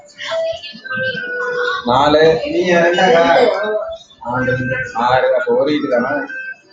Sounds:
Sigh